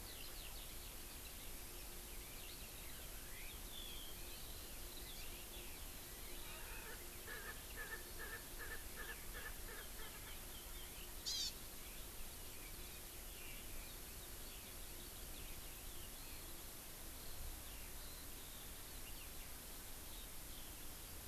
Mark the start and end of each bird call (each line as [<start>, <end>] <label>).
[0.00, 0.85] Erckel's Francolin (Pternistis erckelii)
[0.00, 21.27] Eurasian Skylark (Alauda arvensis)
[5.05, 5.25] Hawaii Amakihi (Chlorodrepanis virens)
[6.35, 10.35] Erckel's Francolin (Pternistis erckelii)
[11.25, 11.55] Hawaii Amakihi (Chlorodrepanis virens)